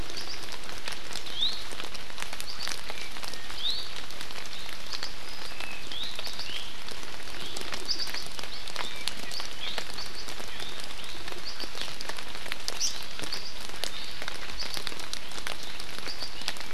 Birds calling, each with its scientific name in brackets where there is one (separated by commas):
Hawaii Amakihi (Chlorodrepanis virens), Iiwi (Drepanis coccinea)